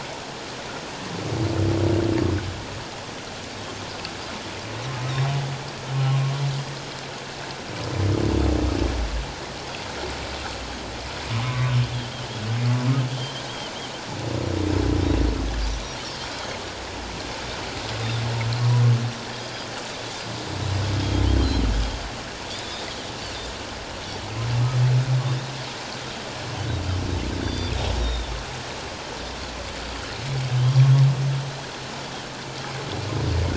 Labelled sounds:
11.3	11.7	humpback whale, 0.97 to 1.3 kHz
13.2	13.4	Pacific white-sided dolphin, 3.1 to 3.3 kHz
21.3	21.6	Pacific white-sided dolphin, 4.0 to 4.2 kHz
27.4	28.3	Pacific white-sided dolphin, 3.3 to 4.8 kHz

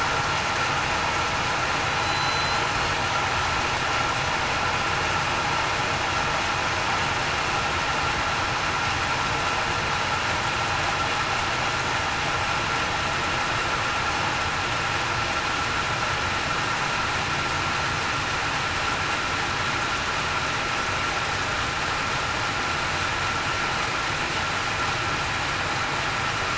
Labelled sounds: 2.0	2.7	killer whale, southern resident, 4.0 to 4.1 kHz

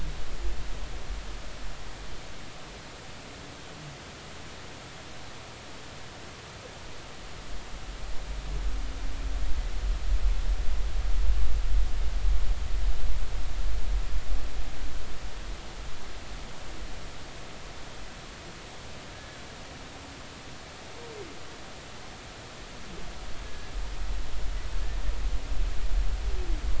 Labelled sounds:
23.4	23.7	humpback whale, 1.66 to 1.73 kHz

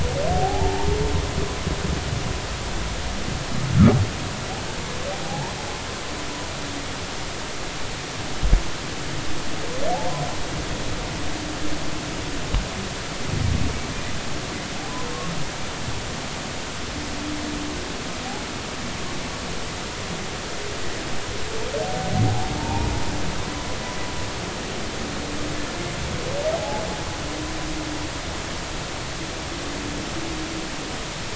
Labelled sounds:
0.3	1.0	humpback whale, 0.80 to 1.0 kHz
5.1	5.6	humpback whale, 0.80 to 1.1 kHz
22.2	22.9	humpback whale, 0.80 to 0.99 kHz
26.5	26.8	humpback whale, 0.80 to 0.93 kHz

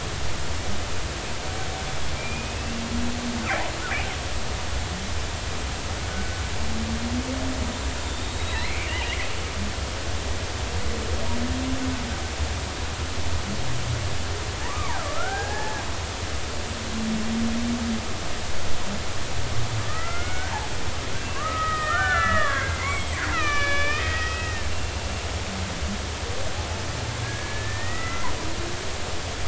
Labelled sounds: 2.2	2.8	killer whale, Bigg's (transient), 2.3 to 2.8 kHz
6.0	6.4	killer whale, Bigg's (transient), 1.4 to 1.5 kHz
8.0	9.2	killer whale, Bigg's (transient), 1.7 to 4.2 kHz
14.7	15.9	killer whale, Bigg's (transient), 0.80 to 1.9 kHz
19.9	20.5	killer whale, Bigg's (transient), 1.2 to 2.3 kHz
21.2	24.7	killer whale, Bigg's (transient), 0.96 to 6.1 kHz
27.2	28.3	killer whale, Bigg's (transient), 1.2 to 2.1 kHz

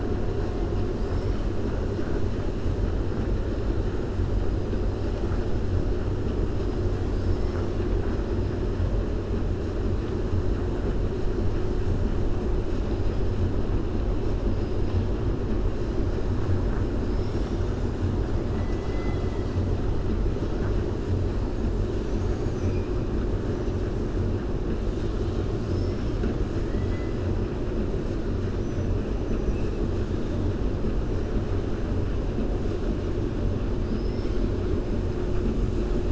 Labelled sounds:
7.0	7.7	killer whale, 4.4 to 6.2 kHz
18.5	19.6	killer whale, 0.88 to 6.8 kHz
25.6	26.4	killer whale, 0.73 to 7.2 kHz
28.5	28.9	killer whale, 5.8 to 6.1 kHz

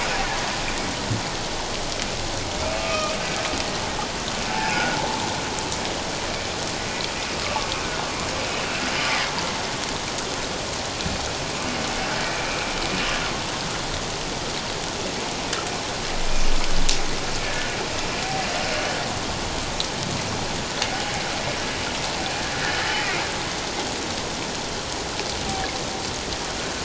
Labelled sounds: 2.8	3.2	humpback whale, 1.1 to 2.6 kHz
4.5	5.0	humpback whale, 0.78 to 1.5 kHz
7.4	7.7	humpback whale, 1.1 to 1.2 kHz
17.4	17.7	humpback whale, 1.6 to 1.8 kHz

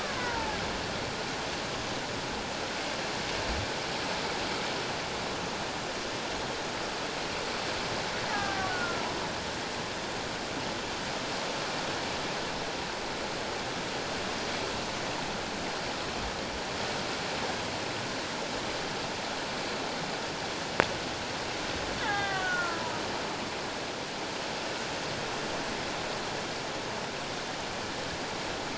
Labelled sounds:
0.0	0.6	killer whale, Bigg's (transient), 0.81 to 1.6 kHz
8.3	9.0	killer whale, Bigg's (transient), 0.78 to 1.8 kHz
22.0	22.9	killer whale, Bigg's (transient), 0.78 to 3.8 kHz

